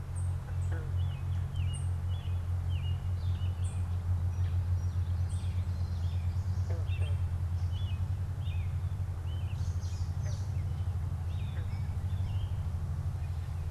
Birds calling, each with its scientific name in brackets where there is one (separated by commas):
unidentified bird, Song Sparrow (Melospiza melodia), American Robin (Turdus migratorius)